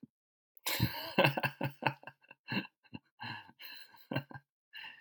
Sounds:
Laughter